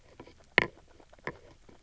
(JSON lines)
{"label": "biophony, grazing", "recorder": "SoundTrap 300"}